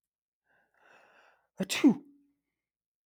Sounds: Sneeze